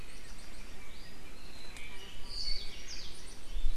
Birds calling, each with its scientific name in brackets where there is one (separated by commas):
Hawaii Creeper (Loxops mana), Yellow-fronted Canary (Crithagra mozambica)